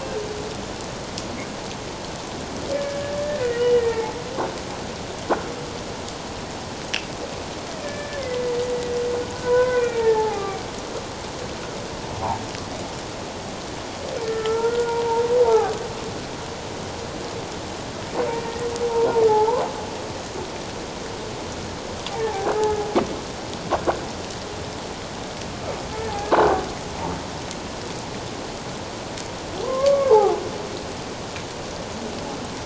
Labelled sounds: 2.8	4.1	humpback whale, 0.81 to 3.0 kHz
7.8	8.6	humpback whale, 1.7 to 2.2 kHz
9.4	10.6	humpback whale, 0.78 to 2.5 kHz
14.2	15.8	humpback whale, 0.78 to 1.8 kHz
18.3	18.7	humpback whale, 1.8 to 1.9 kHz
19.3	19.6	humpback whale, 0.78 to 1.1 kHz
22.5	22.8	humpback whale, 1.2 to 1.8 kHz
26.3	26.6	humpback whale, 1.4 to 1.6 kHz
29.6	30.4	humpback whale, 0.78 to 1.2 kHz

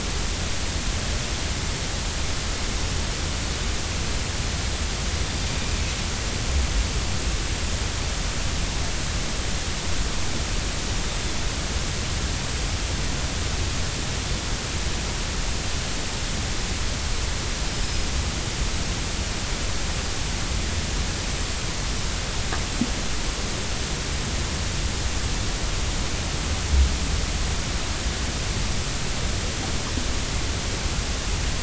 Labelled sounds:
17.7	18.0	Pacific white-sided dolphin, 5.1 to 5.2 kHz

